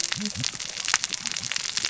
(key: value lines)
label: biophony, cascading saw
recorder: SoundTrap 600 or HydroMoth